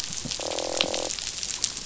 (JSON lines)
{"label": "biophony, croak", "recorder": "SoundTrap 500"}